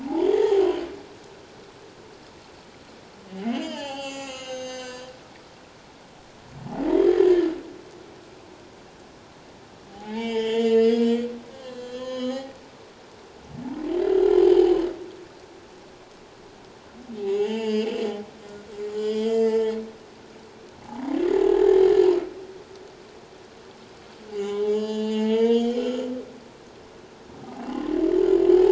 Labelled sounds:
0.3	0.9	humpback whale, 0.78 to 3.2 kHz
3.3	5.1	humpback whale, 0.78 to 7.7 kHz
7.1	7.5	humpback whale, 1.7 to 2.0 kHz
9.9	12.5	humpback whale, 0.78 to 7.5 kHz
14.3	14.6	humpback whale, 3.0 to 3.2 kHz
17.2	18.0	humpback whale, 0.78 to 7.5 kHz
18.9	19.8	humpback whale, 0.84 to 7.8 kHz
20.8	21.8	humpback whale, 0.78 to 1.8 kHz
24.3	25.8	humpback whale, 0.81 to 7.0 kHz

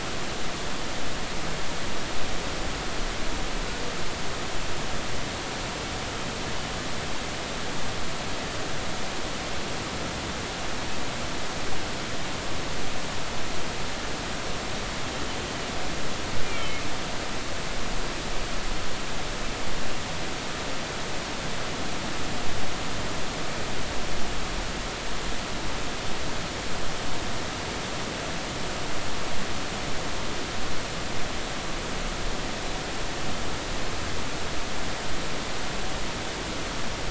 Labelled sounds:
16.4	16.8	humpback whale, 2.1 to 2.4 kHz

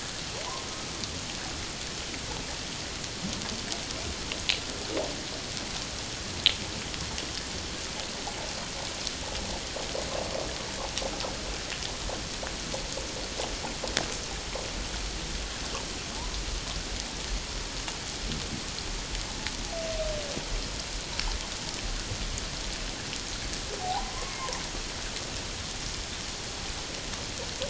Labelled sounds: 23.8	24.5	humpback whale, 0.78 to 2.2 kHz

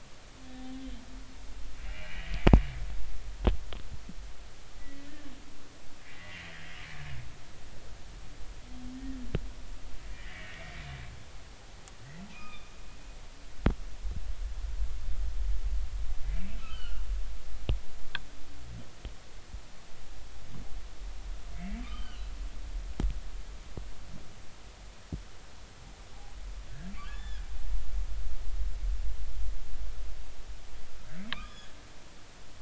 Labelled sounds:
1.9	2.3	humpback whale, 1.8 to 3.1 kHz
4.8	5.1	humpback whale, 1.9 to 2.0 kHz
6.0	6.5	humpback whale, 1.9 to 2.5 kHz
10.1	10.7	humpback whale, 1.7 to 2.4 kHz
12.3	12.7	humpback whale, 1.2 to 2.7 kHz
16.6	17.0	humpback whale, 1.1 to 3.2 kHz
21.5	22.2	humpback whale, 1.1 to 3.2 kHz
26.7	27.4	humpback whale, 1.4 to 3.6 kHz
28.0	28.2	humpback whale, 1.0 to 1.3 kHz
31.3	31.7	humpback whale, 1.0 to 3.5 kHz

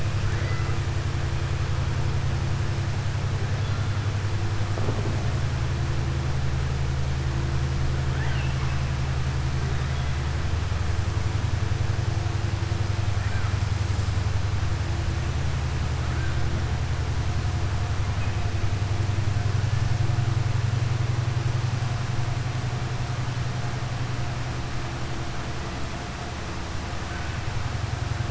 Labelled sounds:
0.2	0.8	killer whale, southern resident, 1.2 to 2.7 kHz
8.1	8.7	killer whale, southern resident, 0.91 to 3.3 kHz

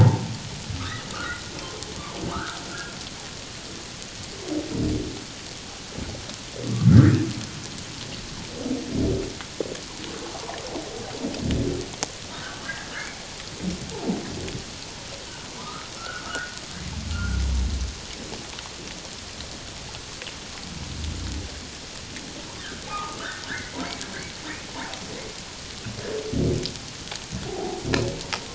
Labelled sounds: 0.0	1.9	humpback whale, 0.78 to 1.5 kHz
2.3	2.6	humpback whale, 1.1 to 1.7 kHz
6.9	7.2	humpback whale, 1.3 to 1.9 kHz
12.3	12.9	humpback whale, 1.2 to 2.1 kHz
15.6	17.4	humpback whale, 0.91 to 1.7 kHz
22.9	23.8	humpback whale, 0.78 to 2.2 kHz
27.5	27.8	humpback whale, 0.78 to 0.94 kHz

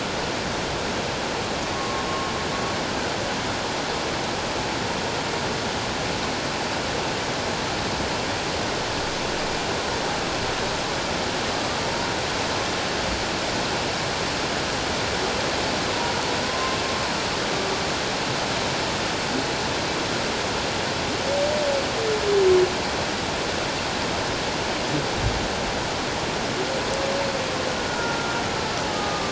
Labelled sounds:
1.7	2.0	humpback whale, 1.0 to 1.1 kHz
16.4	16.8	humpback whale, 1.0 to 1.1 kHz
27.9	28.3	humpback whale, 1.3 to 1.5 kHz
28.9	29.3	humpback whale, 1.1 to 1.3 kHz

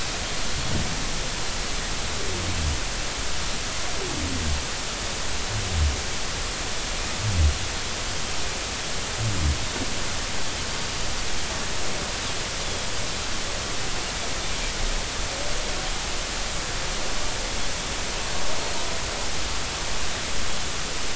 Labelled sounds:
12.6	12.9	Pacific white-sided dolphin, 3.3 to 3.6 kHz

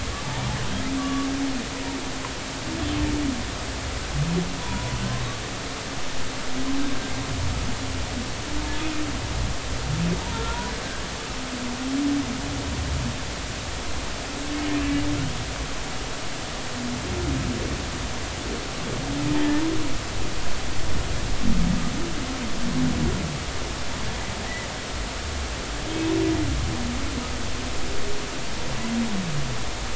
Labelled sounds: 1.0	1.3	humpback whale, 1.1 to 1.2 kHz
4.6	5.0	humpback whale, 0.90 to 1.0 kHz
10.3	10.7	humpback whale, 0.90 to 1.5 kHz

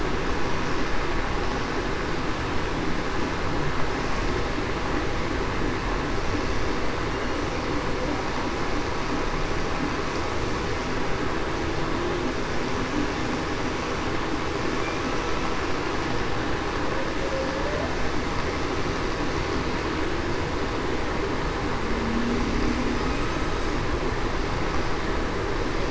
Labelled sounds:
21.9	22.4	humpback whale, 0.21 to 0.28 kHz

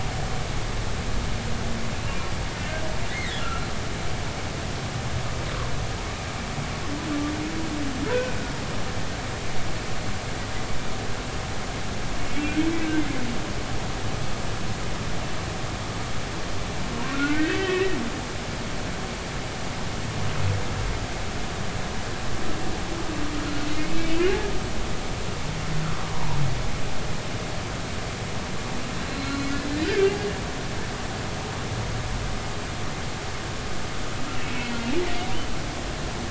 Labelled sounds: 3.1	3.7	humpback whale, 1.2 to 2.2 kHz
8.1	8.3	humpback whale, 1.4 to 1.6 kHz
17.1	17.9	humpback whale, 1.3 to 2.8 kHz
23.7	24.1	humpback whale, 2.0 to 2.7 kHz
26.0	26.4	humpback whale, 0.83 to 1.2 kHz
29.1	29.5	humpback whale, 4.0 to 4.3 kHz
29.8	30.1	humpback whale, 1.4 to 1.8 kHz
34.4	34.7	humpback whale, 2.1 to 2.3 kHz

